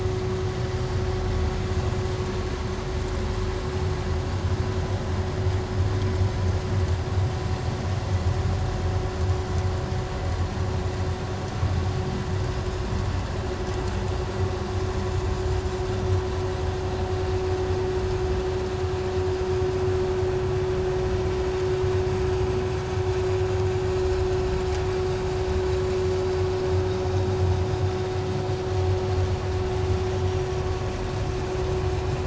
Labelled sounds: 24.0	24.3	vessel noise, 5.1 to 5.3 kHz

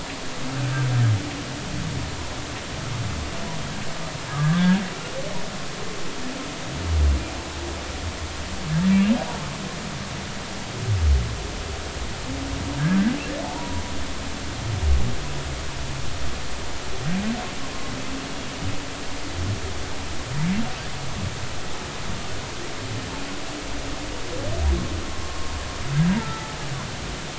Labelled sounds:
4.4	4.8	humpback whale, 1.5 to 1.8 kHz
13.4	13.8	humpback whale, 0.80 to 1.0 kHz
25.2	25.5	humpback whale, 0.99 to 1.1 kHz

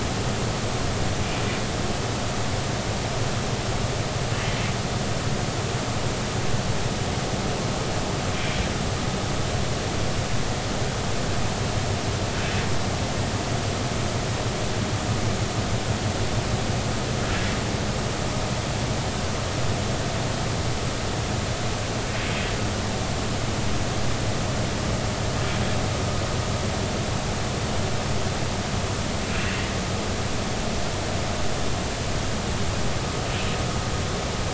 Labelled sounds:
8.3	8.6	humpback whale, 2.2 to 2.4 kHz

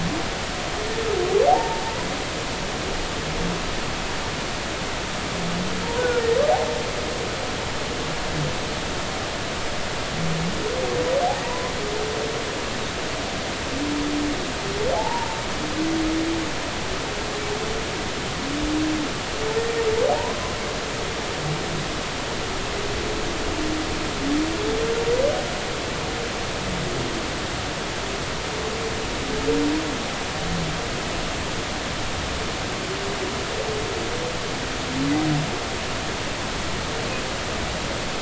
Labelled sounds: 1.5	1.8	humpback whale, 0.80 to 0.96 kHz
6.0	6.2	humpback whale, 1.3 to 1.6 kHz
11.4	11.7	humpback whale, 0.90 to 1.1 kHz
14.9	15.4	humpback whale, 0.80 to 1.0 kHz
20.2	20.4	humpback whale, 0.86 to 1.1 kHz

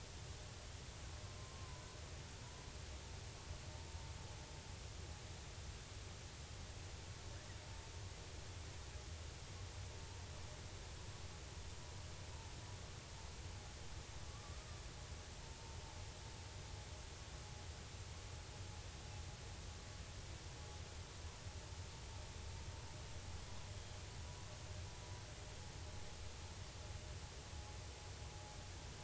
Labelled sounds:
1.5	1.8	killer whale, 0.90 to 1.1 kHz
14.3	14.7	killer whale, 1.1 to 1.3 kHz
23.7	24.0	killer whale, 3.1 to 3.4 kHz

